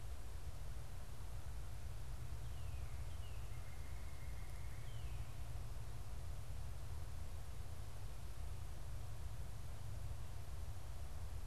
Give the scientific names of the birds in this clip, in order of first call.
Cardinalis cardinalis